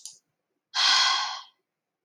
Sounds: Sigh